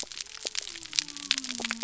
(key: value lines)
label: biophony
recorder: SoundTrap 300